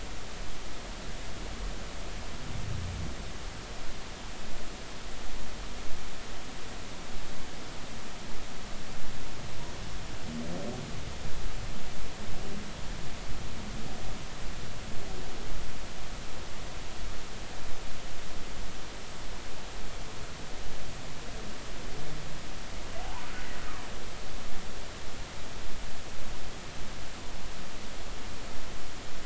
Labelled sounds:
23.0	23.3	humpback whale, 0.80 to 1.1 kHz

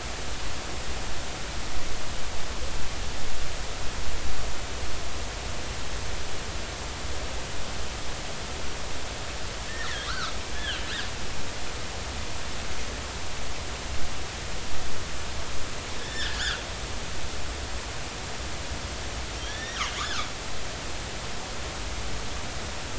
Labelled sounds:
9.7	10.8	killer whale, northern resident, G clan, GG subclan, call N29, 1.1 to 4.8 kHz
16.0	16.4	killer whale, northern resident, G clan, GG subclan, call N29, 1.4 to 3.7 kHz
19.4	20.3	killer whale, northern resident, G clan, GG subclan, call N29, 1.0 to 3.8 kHz

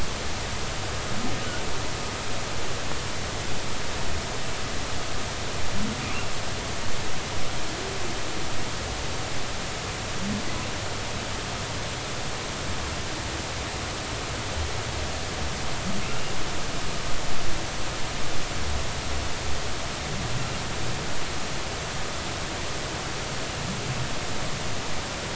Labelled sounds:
16.0	16.3	humpback whale, 2.5 to 2.9 kHz

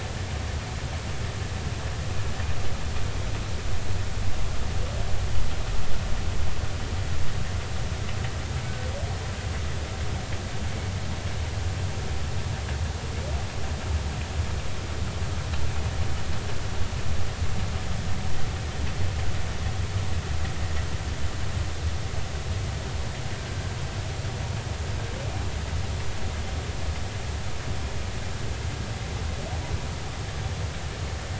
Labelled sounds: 8.6	8.9	humpback whale, 1.47 to 1.54 kHz

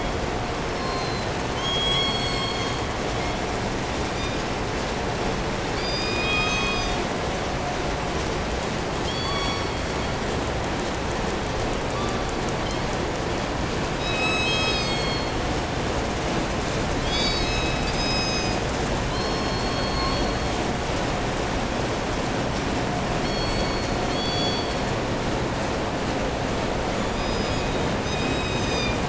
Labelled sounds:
0.5	1.3	killer whale, 0.98 to 6.6 kHz
1.6	3.5	killer whale, southern resident, call S16, 0.92 to 8.0 kHz
4.1	4.5	killer whale, southern resident, call S17, 2.2 to 8.0 kHz
5.6	7.1	killer whale, southern resident, 1.0 to 8.0 kHz
9.0	10.2	killer whale, southern resident, call S16, 0.80 to 8.0 kHz
11.8	13.0	killer whale, southern resident, call S16, 0.90 to 6.8 kHz
13.9	15.4	killer whale, southern resident, 0.99 to 8.0 kHz
17.0	18.7	killer whale, southern resident, 1.9 to 8.0 kHz
19.0	20.7	killer whale, southern resident, call S16, 0.75 to 8.0 kHz
23.2	25.0	killer whale, southern resident, call S16, 1.9 to 8.0 kHz
26.8	28.0	killer whale, southern resident, 2.1 to 8.0 kHz
28.0	29.0	killer whale, southern resident, call S17, 2.1 to 8.0 kHz

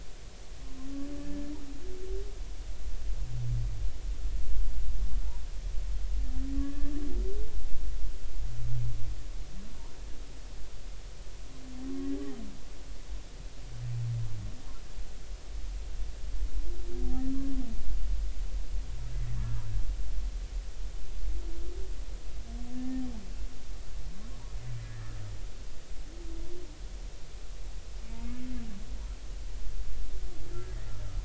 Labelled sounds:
6.6	6.9	humpback whale, 1.1 to 1.8 kHz
22.7	23.0	humpback whale, 1.7 to 1.9 kHz
24.8	25.2	humpback whale, 1.6 to 2.0 kHz

